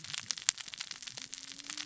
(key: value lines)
label: biophony, cascading saw
recorder: SoundTrap 600 or HydroMoth